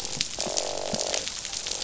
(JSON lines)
{"label": "biophony, croak", "recorder": "SoundTrap 500"}
{"label": "biophony", "recorder": "SoundTrap 500"}